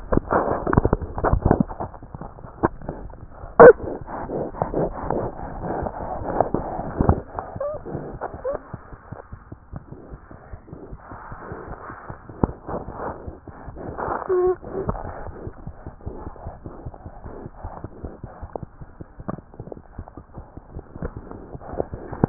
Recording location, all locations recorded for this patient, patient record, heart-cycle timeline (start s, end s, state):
aortic valve (AV)
aortic valve (AV)+pulmonary valve (PV)
#Age: Infant
#Sex: Female
#Height: 65.0 cm
#Weight: 7.6 kg
#Pregnancy status: False
#Murmur: Absent
#Murmur locations: nan
#Most audible location: nan
#Systolic murmur timing: nan
#Systolic murmur shape: nan
#Systolic murmur grading: nan
#Systolic murmur pitch: nan
#Systolic murmur quality: nan
#Diastolic murmur timing: nan
#Diastolic murmur shape: nan
#Diastolic murmur grading: nan
#Diastolic murmur pitch: nan
#Diastolic murmur quality: nan
#Outcome: Normal
#Campaign: 2015 screening campaign
0.00	15.34	unannotated
15.34	15.43	systole
15.43	15.52	S2
15.52	15.63	diastole
15.63	15.72	S1
15.72	15.84	systole
15.84	15.93	S2
15.93	16.03	diastole
16.03	16.12	S1
16.12	16.24	systole
16.24	16.32	S2
16.32	16.43	diastole
16.43	16.52	S1
16.52	16.62	systole
16.62	16.72	S2
16.72	16.84	diastole
16.84	16.93	S1
16.93	17.04	systole
17.04	17.13	S2
17.13	17.22	diastole
17.22	17.32	S1
17.32	17.44	systole
17.44	17.50	S2
17.50	17.62	diastole
17.62	17.71	S1
17.71	17.81	systole
17.81	17.89	S2
17.89	18.02	diastole
18.02	18.12	S1
18.12	18.22	systole
18.22	18.32	S2
18.32	18.40	diastole
18.40	18.50	S1
18.50	18.60	systole
18.60	18.70	S2
18.70	18.80	diastole
18.80	18.88	S1
18.88	18.99	systole
18.99	19.06	S2
19.06	19.17	diastole
19.17	19.24	S1
19.24	19.32	systole
19.32	19.37	S2
19.37	19.53	diastole
19.53	22.29	unannotated